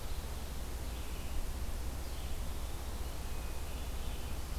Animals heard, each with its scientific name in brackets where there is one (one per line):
Red-eyed Vireo (Vireo olivaceus)
Hermit Thrush (Catharus guttatus)